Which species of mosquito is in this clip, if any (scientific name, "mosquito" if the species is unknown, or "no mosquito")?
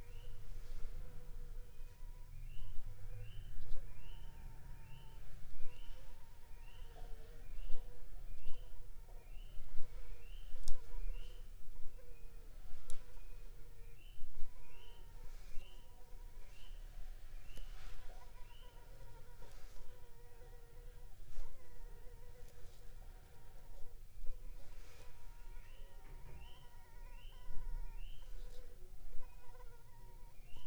Anopheles funestus s.s.